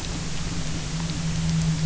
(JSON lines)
{"label": "anthrophony, boat engine", "recorder": "SoundTrap 300"}